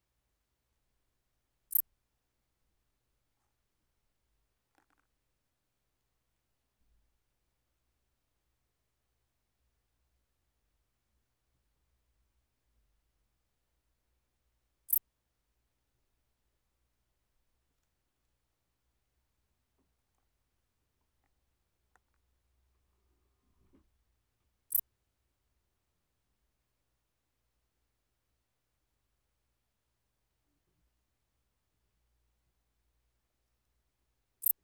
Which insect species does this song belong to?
Pholidoptera griseoaptera